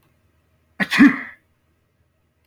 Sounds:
Sneeze